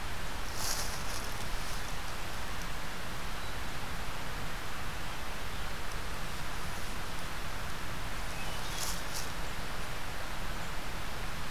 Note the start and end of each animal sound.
[8.05, 9.03] Hermit Thrush (Catharus guttatus)

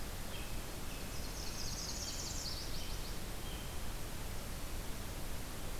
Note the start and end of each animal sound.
[0.00, 3.73] American Robin (Turdus migratorius)
[0.91, 2.69] Northern Parula (Setophaga americana)
[1.28, 3.48] Nashville Warbler (Leiothlypis ruficapilla)

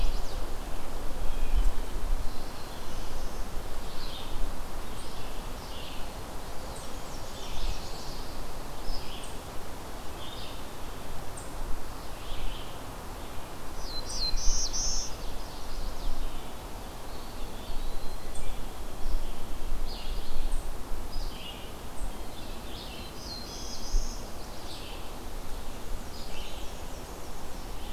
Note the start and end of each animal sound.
[0.00, 0.70] Chestnut-sided Warbler (Setophaga pensylvanica)
[0.00, 27.93] Red-eyed Vireo (Vireo olivaceus)
[2.04, 3.57] Black-throated Blue Warbler (Setophaga caerulescens)
[6.59, 8.38] Black-and-white Warbler (Mniotilta varia)
[13.69, 15.23] Black-throated Blue Warbler (Setophaga caerulescens)
[15.10, 16.25] Chestnut-sided Warbler (Setophaga pensylvanica)
[16.94, 18.32] Eastern Wood-Pewee (Contopus virens)
[23.04, 24.30] Black-throated Blue Warbler (Setophaga caerulescens)
[25.80, 27.71] Black-and-white Warbler (Mniotilta varia)

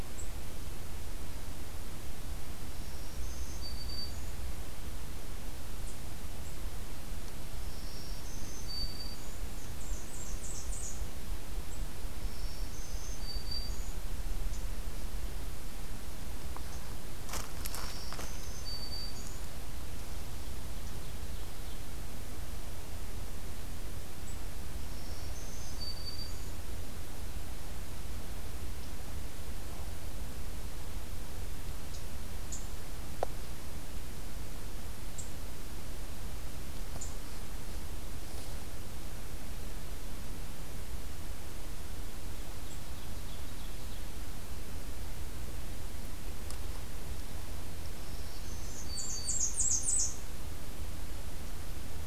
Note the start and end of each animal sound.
[2.75, 4.46] Black-throated Green Warbler (Setophaga virens)
[7.52, 9.52] Black-throated Green Warbler (Setophaga virens)
[9.61, 11.03] Blackburnian Warbler (Setophaga fusca)
[12.10, 14.01] Black-throated Green Warbler (Setophaga virens)
[17.49, 19.53] Black-throated Green Warbler (Setophaga virens)
[24.78, 26.61] Black-throated Green Warbler (Setophaga virens)
[42.07, 44.23] Ovenbird (Seiurus aurocapilla)
[47.90, 49.63] Black-throated Green Warbler (Setophaga virens)
[48.84, 50.13] Blackburnian Warbler (Setophaga fusca)

